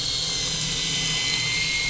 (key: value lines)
label: anthrophony, boat engine
recorder: SoundTrap 500